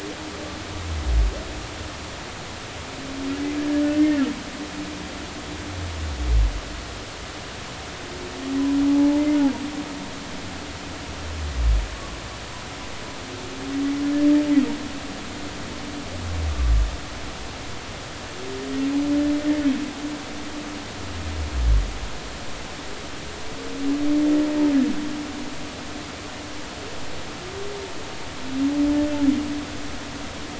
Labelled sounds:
4.0	4.3	humpback whale, 1.5 to 2.0 kHz
8.9	9.2	humpback whale, 0.83 to 0.99 kHz

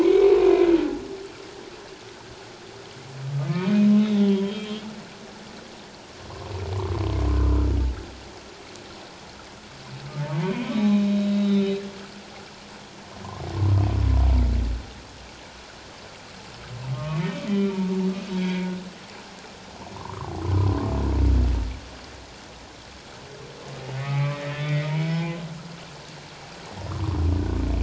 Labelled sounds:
0.0	0.8	humpback whale, 2.0 to 2.4 kHz
3.5	3.7	humpback whale, 2.2 to 2.5 kHz
4.0	4.8	humpback whale, 0.94 to 3.9 kHz
10.4	11.1	humpback whale, 2.3 to 4.0 kHz
11.4	11.8	humpback whale, 3.5 to 4.0 kHz
16.9	17.8	humpback whale, 1.0 to 2.5 kHz
18.4	18.7	humpback whale, 1.6 to 3.4 kHz
20.0	20.9	humpback whale, 0.88 to 1.3 kHz
23.9	25.4	humpback whale, 0.97 to 2.5 kHz
26.9	27.2	humpback whale, 0.94 to 1.4 kHz

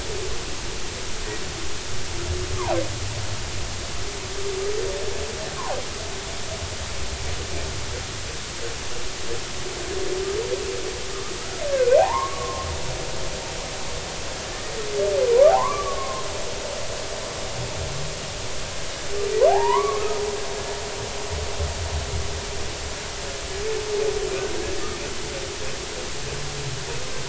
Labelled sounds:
12.0	12.7	humpback whale, 0.80 to 1.2 kHz
15.5	16.2	humpback whale, 0.80 to 1.2 kHz
20.5	21.2	humpback whale, 0.80 to 2.3 kHz

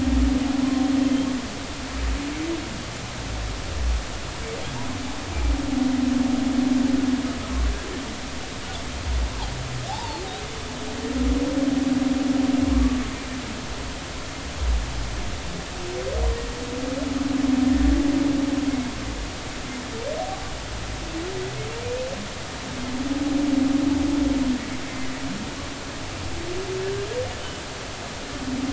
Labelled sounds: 9.9	10.2	humpback whale, 0.80 to 0.99 kHz
12.7	13.0	humpback whale, 1.0 to 1.2 kHz
24.8	25.2	humpback whale, 1.9 to 2.2 kHz

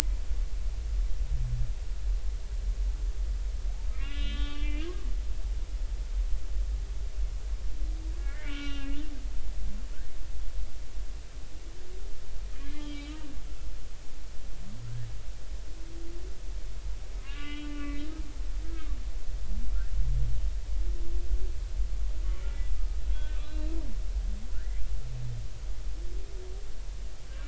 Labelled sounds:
3.9	5.9	humpback whale, 1.1 to 4.4 kHz
8.2	9.0	humpback whale, 1.3 to 5.7 kHz
12.5	13.2	humpback whale, 1.6 to 3.3 kHz
17.2	18.0	humpback whale, 1.0 to 3.8 kHz
18.6	19.0	humpback whale, 1.1 to 1.3 kHz
23.0	23.7	humpback whale, 1.5 to 4.0 kHz

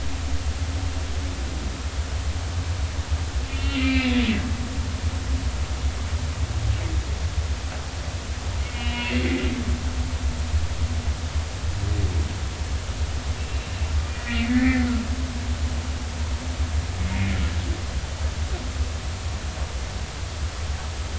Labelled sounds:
3.4	4.8	humpback whale, 2.0 to 4.3 kHz
8.6	9.3	humpback whale, 2.1 to 3.2 kHz
13.4	14.9	humpback whale, 1.7 to 2.8 kHz

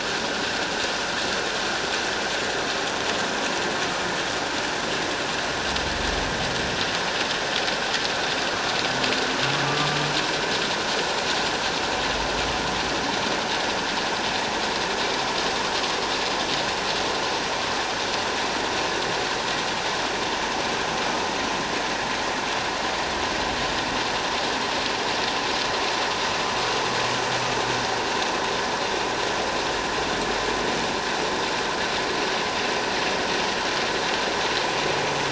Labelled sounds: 9.6	10.0	humpback whale, 1.1 to 1.2 kHz

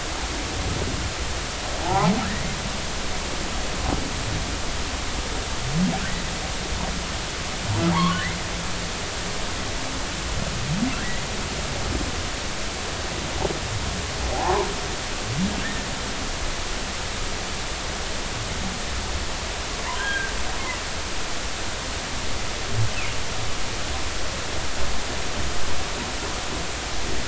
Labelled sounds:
1.8	2.1	humpback whale, 0.80 to 1.1 kHz
7.9	8.2	humpback whale, 0.80 to 1.2 kHz
11.0	11.3	humpback whale, 1.5 to 2.1 kHz
14.3	14.7	humpback whale, 0.80 to 1.2 kHz
15.6	15.9	humpback whale, 1.5 to 1.9 kHz
20.0	20.3	humpback whale, 1.5 to 1.7 kHz

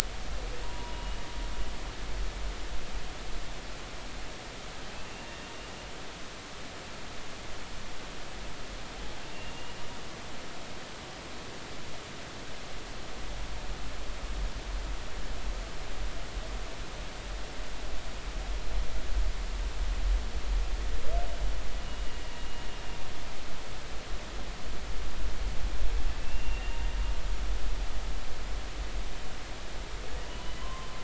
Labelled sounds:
0.6	1.2	humpback whale, 0.90 to 2.9 kHz
9.3	9.8	humpback whale, 2.7 to 2.9 kHz
26.2	26.8	humpback whale, 2.6 to 2.8 kHz
30.6	30.9	humpback whale, 0.96 to 1.2 kHz

